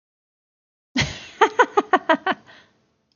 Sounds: Laughter